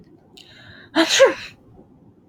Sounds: Sneeze